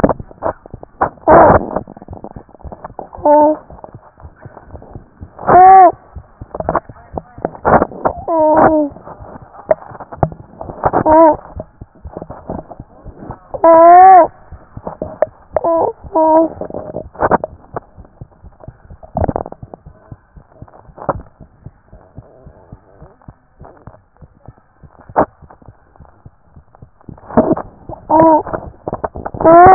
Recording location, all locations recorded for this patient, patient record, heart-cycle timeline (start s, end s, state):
tricuspid valve (TV)
aortic valve (AV)+pulmonary valve (PV)+tricuspid valve (TV)
#Age: Child
#Sex: Male
#Height: 123.0 cm
#Weight: 32.6 kg
#Pregnancy status: False
#Murmur: Absent
#Murmur locations: nan
#Most audible location: nan
#Systolic murmur timing: nan
#Systolic murmur shape: nan
#Systolic murmur grading: nan
#Systolic murmur pitch: nan
#Systolic murmur quality: nan
#Diastolic murmur timing: nan
#Diastolic murmur shape: nan
#Diastolic murmur grading: nan
#Diastolic murmur pitch: nan
#Diastolic murmur quality: nan
#Outcome: Normal
#Campaign: 2014 screening campaign
0.00	21.41	unannotated
21.41	21.47	S1
21.47	21.66	systole
21.66	21.72	S2
21.72	21.93	diastole
21.93	22.00	S1
22.00	22.18	systole
22.18	22.25	S2
22.25	22.47	diastole
22.47	22.54	S1
22.54	22.74	systole
22.74	22.80	S2
22.80	23.01	diastole
23.01	23.08	S1
23.08	23.29	systole
23.29	23.34	S2
23.34	23.60	diastole
23.60	23.66	S1
23.66	23.87	systole
23.87	23.93	S2
23.93	24.20	diastole
24.20	24.26	S1
24.26	24.46	systole
24.46	24.53	S2
24.53	24.83	diastole
24.83	29.74	unannotated